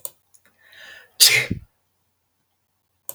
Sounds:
Sneeze